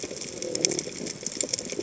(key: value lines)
label: biophony
recorder: HydroMoth